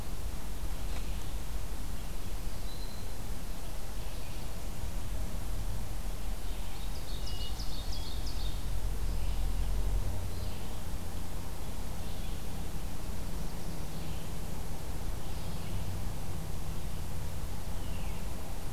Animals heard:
Ovenbird (Seiurus aurocapilla)
Hermit Thrush (Catharus guttatus)
Black-throated Green Warbler (Setophaga virens)

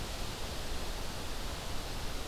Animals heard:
Red-eyed Vireo (Vireo olivaceus)

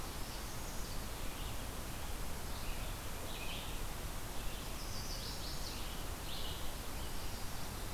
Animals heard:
Northern Parula (Setophaga americana)
Red-eyed Vireo (Vireo olivaceus)
Chestnut-sided Warbler (Setophaga pensylvanica)

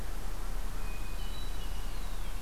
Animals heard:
Red-winged Blackbird (Agelaius phoeniceus)
Hermit Thrush (Catharus guttatus)

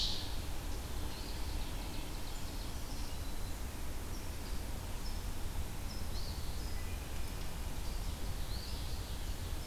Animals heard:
Black-throated Green Warbler (Setophaga virens)
Ovenbird (Seiurus aurocapilla)
Eastern Phoebe (Sayornis phoebe)

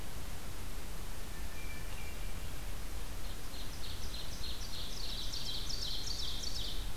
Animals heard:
Hermit Thrush (Catharus guttatus)
Ovenbird (Seiurus aurocapilla)

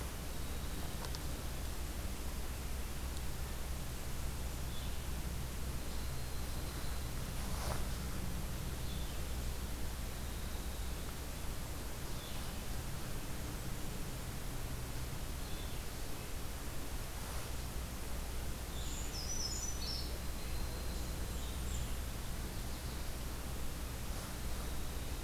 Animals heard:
Brown Creeper (Certhia americana)
Yellow-rumped Warbler (Setophaga coronata)
Blackburnian Warbler (Setophaga fusca)

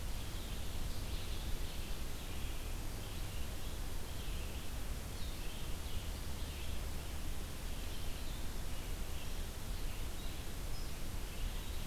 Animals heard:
Red-eyed Vireo (Vireo olivaceus)

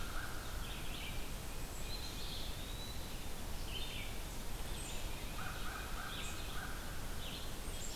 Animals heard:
unknown mammal
Eastern Wood-Pewee (Contopus virens)
Red-eyed Vireo (Vireo olivaceus)
American Crow (Corvus brachyrhynchos)

